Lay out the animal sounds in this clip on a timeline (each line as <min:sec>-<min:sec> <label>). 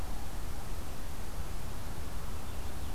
0:02.4-0:02.9 Purple Finch (Haemorhous purpureus)